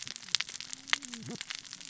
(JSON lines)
{"label": "biophony, cascading saw", "recorder": "SoundTrap 600 or HydroMoth"}